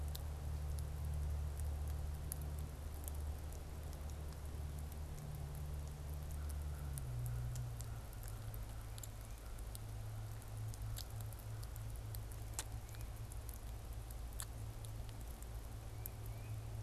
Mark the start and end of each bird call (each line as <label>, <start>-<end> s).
American Crow (Corvus brachyrhynchos), 6.3-13.2 s
Tufted Titmouse (Baeolophus bicolor), 15.8-16.8 s